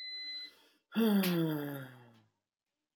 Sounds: Sigh